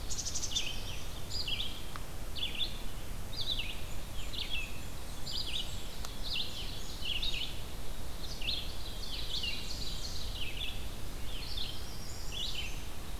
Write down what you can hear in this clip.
Red-eyed Vireo, Black-capped Chickadee, Blackburnian Warbler, Ovenbird, Black-throated Blue Warbler